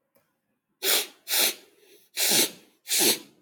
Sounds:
Sniff